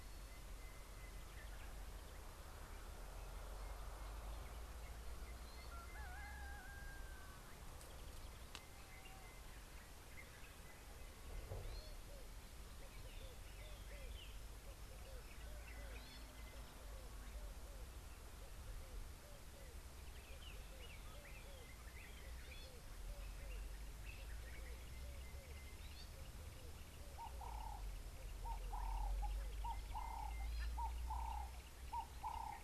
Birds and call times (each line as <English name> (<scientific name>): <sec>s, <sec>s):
Gray-backed Camaroptera (Camaroptera brevicaudata): 30.6s